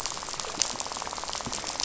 {"label": "biophony, rattle", "recorder": "SoundTrap 500"}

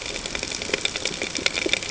{"label": "ambient", "recorder": "HydroMoth"}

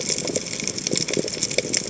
{"label": "biophony, chatter", "recorder": "HydroMoth"}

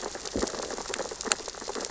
{"label": "biophony, sea urchins (Echinidae)", "recorder": "SoundTrap 600 or HydroMoth"}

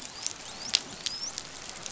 {"label": "biophony, dolphin", "recorder": "SoundTrap 500"}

